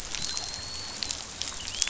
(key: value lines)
label: biophony, dolphin
recorder: SoundTrap 500